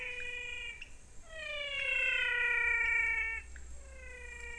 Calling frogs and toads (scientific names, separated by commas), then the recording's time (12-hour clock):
Leptodactylus podicipinus, Physalaemus albonotatus
5:45pm